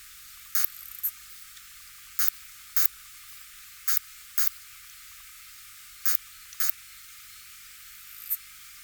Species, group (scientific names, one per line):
Poecilimon veluchianus
Orthoptera